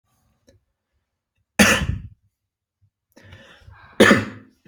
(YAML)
expert_labels:
- quality: good
  cough_type: dry
  dyspnea: false
  wheezing: false
  stridor: false
  choking: false
  congestion: false
  nothing: true
  diagnosis: healthy cough
  severity: pseudocough/healthy cough
age: 19
gender: male
respiratory_condition: false
fever_muscle_pain: false
status: symptomatic